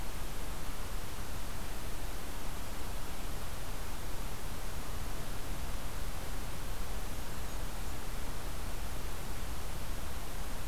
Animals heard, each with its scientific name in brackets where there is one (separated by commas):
Blackburnian Warbler (Setophaga fusca)